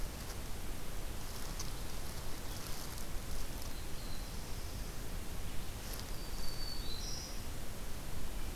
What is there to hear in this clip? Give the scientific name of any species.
Setophaga caerulescens, Setophaga virens